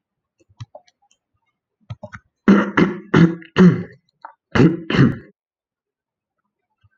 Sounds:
Throat clearing